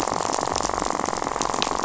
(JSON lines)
{"label": "biophony, rattle", "recorder": "SoundTrap 500"}